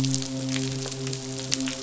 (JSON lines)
{"label": "biophony, midshipman", "recorder": "SoundTrap 500"}